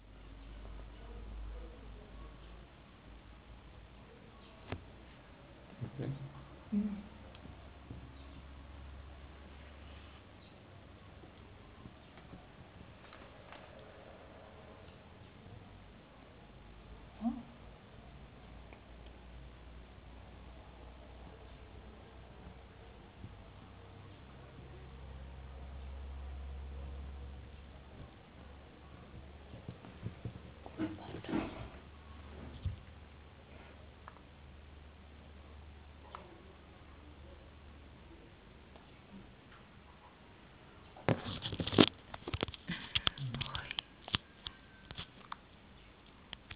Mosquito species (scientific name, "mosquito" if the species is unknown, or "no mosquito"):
no mosquito